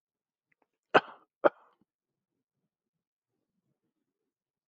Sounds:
Cough